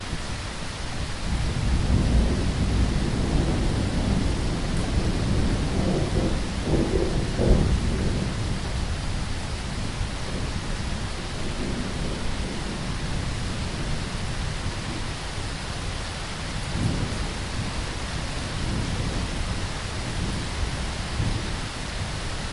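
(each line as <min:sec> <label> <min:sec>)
0:00.0 Heavy rain falling continuously. 0:22.5
0:00.0 Long rolling thunder in the distance. 0:22.5
0:00.0 Heavy wind is blowing. 0:22.5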